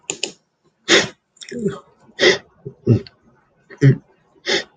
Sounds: Sigh